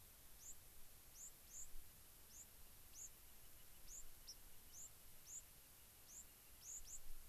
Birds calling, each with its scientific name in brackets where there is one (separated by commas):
unidentified bird, White-crowned Sparrow (Zonotrichia leucophrys)